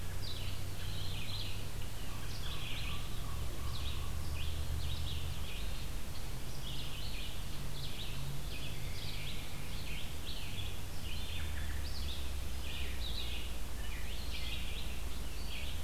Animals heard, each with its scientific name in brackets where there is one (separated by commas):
Common Raven (Corvus corax), Red-eyed Vireo (Vireo olivaceus), American Robin (Turdus migratorius)